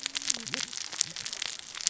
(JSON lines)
{"label": "biophony, cascading saw", "recorder": "SoundTrap 600 or HydroMoth"}